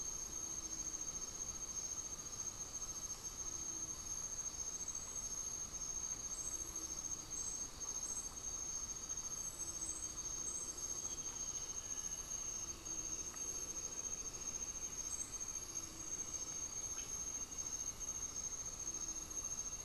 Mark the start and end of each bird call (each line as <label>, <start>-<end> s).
Elegant Woodcreeper (Xiphorhynchus elegans), 10.6-18.7 s